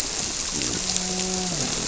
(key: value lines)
label: biophony, grouper
recorder: SoundTrap 300